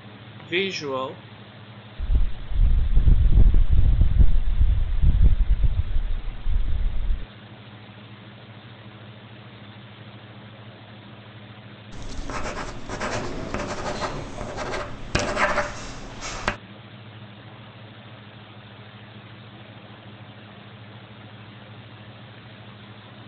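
A soft background noise continues. At the start, someone says "Visual." After that, about 2 seconds in, wind can be heard. Next, about 12 seconds in, writing is audible.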